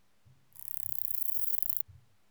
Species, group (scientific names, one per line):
Metrioptera prenjica
Orthoptera